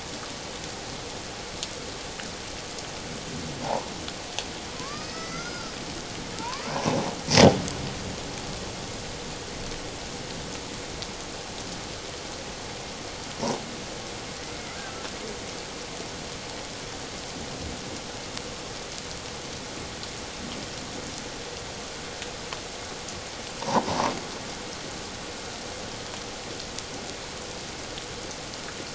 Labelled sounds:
3.6	3.9	killer whale, Bigg's (transient), 0.78 to 1.1 kHz
4.7	5.7	killer whale, Bigg's (transient), 0.97 to 6.4 kHz
6.4	6.6	killer whale, Bigg's (transient), 0.84 to 1.2 kHz

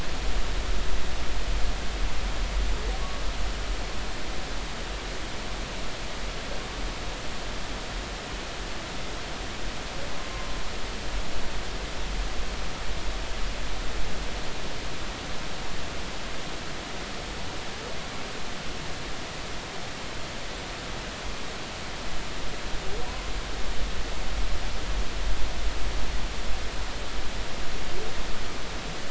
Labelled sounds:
23.1	23.3	humpback whale, 0.93 to 1.1 kHz

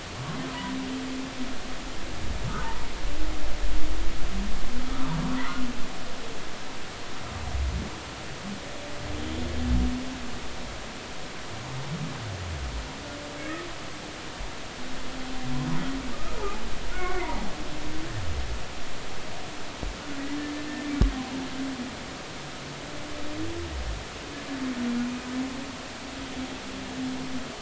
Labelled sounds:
16.1	17.5	humpback whale, 0.80 to 2.3 kHz

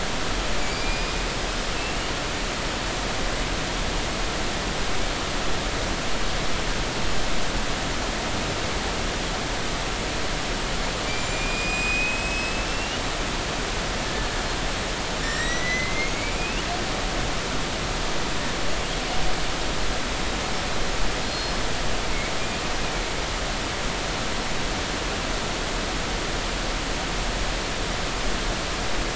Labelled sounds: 0.6	1.1	killer whale, Bigg's (transient), 2.2 to 5.0 kHz
11.2	13.0	killer whale, Bigg's (transient), 2.4 to 8.0 kHz
15.2	16.7	killer whale, Bigg's (transient), 1.8 to 7.9 kHz
21.3	21.6	killer whale, Bigg's (transient), 5.0 to 5.2 kHz
22.2	22.5	killer whale, Bigg's (transient), 4.2 to 4.3 kHz

